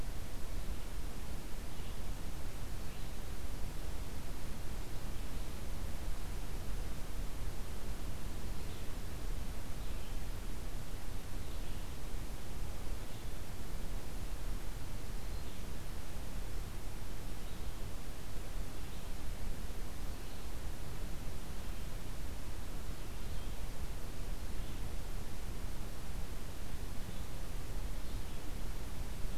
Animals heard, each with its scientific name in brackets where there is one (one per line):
Red-eyed Vireo (Vireo olivaceus)